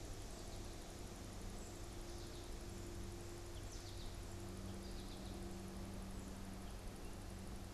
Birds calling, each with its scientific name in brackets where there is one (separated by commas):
American Goldfinch (Spinus tristis)